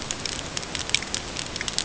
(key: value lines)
label: ambient
recorder: HydroMoth